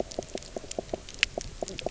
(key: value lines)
label: biophony, knock croak
recorder: SoundTrap 300